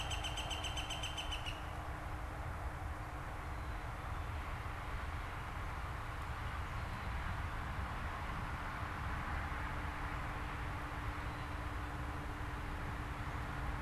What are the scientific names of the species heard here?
Colaptes auratus, Poecile atricapillus